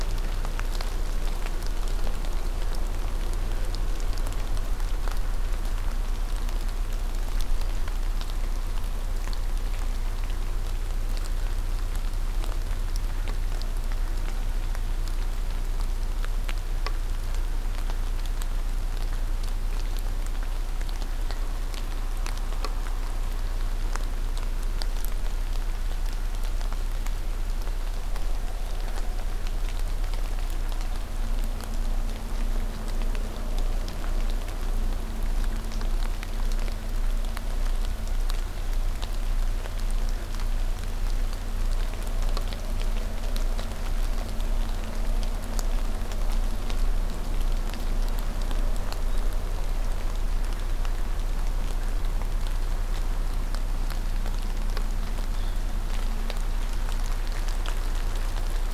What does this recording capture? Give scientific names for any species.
forest ambience